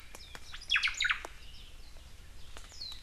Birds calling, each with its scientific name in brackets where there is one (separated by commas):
Omao (Myadestes obscurus), Warbling White-eye (Zosterops japonicus)